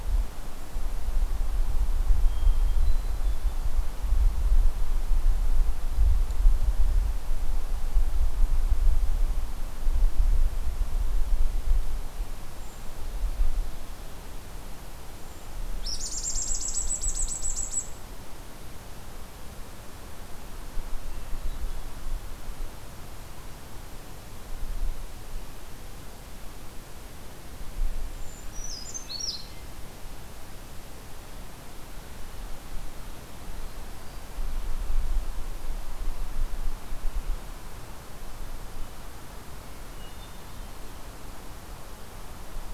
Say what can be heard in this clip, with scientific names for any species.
Catharus guttatus, Certhia americana, unidentified call